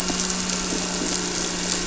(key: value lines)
label: anthrophony, boat engine
recorder: SoundTrap 300